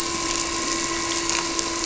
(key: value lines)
label: anthrophony, boat engine
recorder: SoundTrap 300